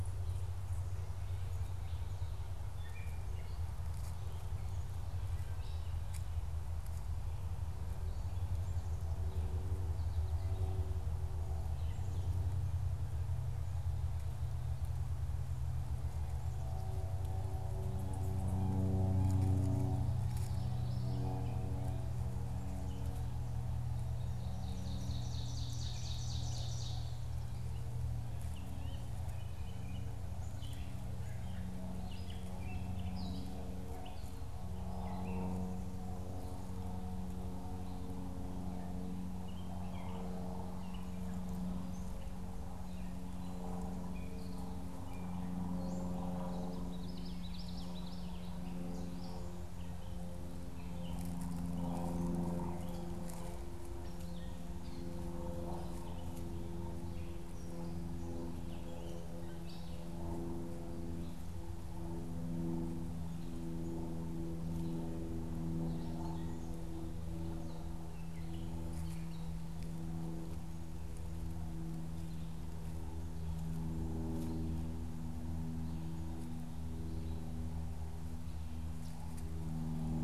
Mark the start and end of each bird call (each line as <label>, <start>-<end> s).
Gray Catbird (Dumetella carolinensis), 2.5-3.5 s
Ovenbird (Seiurus aurocapilla), 23.9-27.4 s
Gray Catbird (Dumetella carolinensis), 28.3-34.2 s
Gray Catbird (Dumetella carolinensis), 39.1-46.6 s
Common Yellowthroat (Geothlypis trichas), 46.4-48.6 s
Gray Catbird (Dumetella carolinensis), 48.8-60.2 s
Gray Catbird (Dumetella carolinensis), 65.9-69.6 s